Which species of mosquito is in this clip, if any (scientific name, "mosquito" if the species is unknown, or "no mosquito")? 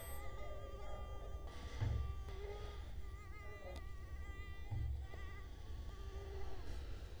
Culex quinquefasciatus